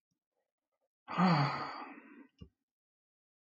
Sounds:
Sigh